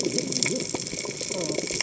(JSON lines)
{"label": "biophony, cascading saw", "recorder": "HydroMoth"}